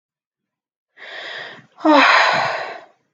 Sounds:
Sigh